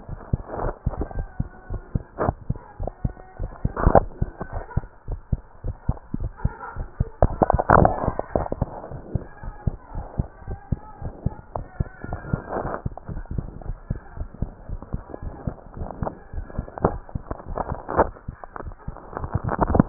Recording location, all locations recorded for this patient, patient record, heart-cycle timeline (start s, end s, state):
tricuspid valve (TV)
aortic valve (AV)+pulmonary valve (PV)+tricuspid valve (TV)+mitral valve (MV)
#Age: Child
#Sex: Male
#Height: 131.0 cm
#Weight: 34.2 kg
#Pregnancy status: False
#Murmur: Unknown
#Murmur locations: nan
#Most audible location: nan
#Systolic murmur timing: nan
#Systolic murmur shape: nan
#Systolic murmur grading: nan
#Systolic murmur pitch: nan
#Systolic murmur quality: nan
#Diastolic murmur timing: nan
#Diastolic murmur shape: nan
#Diastolic murmur grading: nan
#Diastolic murmur pitch: nan
#Diastolic murmur quality: nan
#Outcome: Normal
#Campaign: 2015 screening campaign
0.00	0.07	unannotated
0.07	0.20	S1
0.20	0.28	systole
0.28	0.44	S2
0.44	0.62	diastole
0.62	0.74	S1
0.74	0.82	systole
0.82	0.94	S2
0.94	1.14	diastole
1.14	1.28	S1
1.28	1.37	systole
1.37	1.48	S2
1.48	1.68	diastole
1.68	1.82	S1
1.82	1.92	systole
1.92	2.04	S2
2.04	2.18	diastole
2.18	2.34	S1
2.34	2.46	systole
2.46	2.60	S2
2.60	2.78	diastole
2.78	2.90	S1
2.90	3.00	systole
3.00	3.14	S2
3.14	3.37	diastole
3.37	3.52	S1
3.52	3.62	systole
3.62	3.71	S2
3.71	3.84	diastole
3.84	4.02	S1
4.02	4.16	systole
4.16	4.32	S2
4.32	4.51	diastole
4.51	4.64	S1
4.64	4.72	systole
4.72	4.86	S2
4.86	5.06	diastole
5.06	5.20	S1
5.20	5.28	systole
5.28	5.42	S2
5.42	5.62	diastole
5.62	5.76	S1
5.76	5.84	systole
5.84	5.98	S2
5.98	6.18	diastole
6.18	6.32	S1
6.32	6.40	systole
6.40	6.54	S2
6.54	6.74	diastole
6.74	6.88	S1
6.88	6.96	systole
6.96	7.08	S2
7.08	7.24	diastole
7.24	7.40	S1
7.40	7.50	systole
7.50	7.58	S2
7.58	7.74	diastole
7.74	7.92	S1
7.92	8.04	systole
8.04	8.16	S2
8.16	8.36	diastole
8.36	8.48	S1
8.48	8.60	systole
8.60	8.72	S2
8.72	8.92	diastole
8.92	9.02	S1
9.02	9.12	systole
9.12	9.24	S2
9.24	9.42	diastole
9.42	9.54	S1
9.54	9.64	systole
9.64	9.76	S2
9.76	9.93	diastole
9.93	10.06	S1
10.06	10.16	systole
10.16	10.26	S2
10.26	10.45	diastole
10.45	10.58	S1
10.58	10.68	systole
10.68	10.82	S2
10.82	11.01	diastole
11.01	11.14	S1
11.14	11.22	systole
11.22	11.36	S2
11.36	11.56	diastole
11.56	11.66	S1
11.66	11.76	systole
11.76	11.90	S2
11.90	12.08	diastole
12.08	12.20	S1
12.20	12.28	systole
12.28	12.40	S2
12.40	12.56	diastole
12.56	12.70	S1
12.70	12.82	systole
12.82	12.92	S2
12.92	13.10	diastole
13.10	13.26	S1
13.26	13.34	systole
13.34	13.46	S2
13.46	13.66	diastole
13.66	13.78	S1
13.78	13.88	systole
13.88	13.98	S2
13.98	14.17	diastole
14.17	14.30	S1
14.30	14.38	systole
14.38	14.50	S2
14.50	14.68	diastole
14.68	14.80	S1
14.80	14.92	systole
14.92	15.04	S2
15.04	15.21	diastole
15.21	15.34	S1
15.34	15.44	systole
15.44	15.56	S2
15.56	15.78	diastole
15.78	15.90	S1
15.90	16.00	systole
16.00	16.10	S2
16.10	16.34	diastole
16.34	16.48	S1
16.48	19.89	unannotated